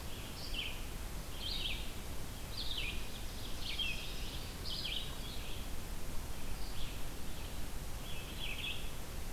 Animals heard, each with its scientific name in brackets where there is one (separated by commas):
Red-eyed Vireo (Vireo olivaceus), Ovenbird (Seiurus aurocapilla)